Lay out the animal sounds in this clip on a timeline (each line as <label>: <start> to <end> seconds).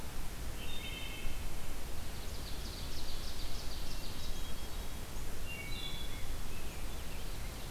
Wood Thrush (Hylocichla mustelina): 0.5 to 1.5 seconds
Ovenbird (Seiurus aurocapilla): 2.0 to 4.7 seconds
Hermit Thrush (Catharus guttatus): 3.7 to 5.1 seconds
Wood Thrush (Hylocichla mustelina): 5.3 to 6.2 seconds
Rose-breasted Grosbeak (Pheucticus ludovicianus): 6.0 to 7.7 seconds
Ovenbird (Seiurus aurocapilla): 6.9 to 7.7 seconds